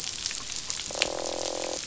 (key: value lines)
label: biophony, croak
recorder: SoundTrap 500